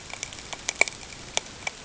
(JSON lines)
{"label": "ambient", "recorder": "HydroMoth"}